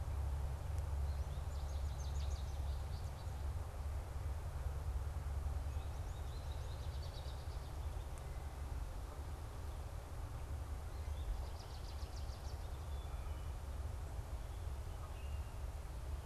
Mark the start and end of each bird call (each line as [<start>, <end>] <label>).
[1.05, 3.25] American Goldfinch (Spinus tristis)
[5.55, 7.86] American Goldfinch (Spinus tristis)
[11.05, 13.26] American Goldfinch (Spinus tristis)
[14.86, 15.36] Common Grackle (Quiscalus quiscula)